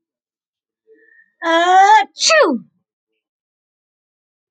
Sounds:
Sneeze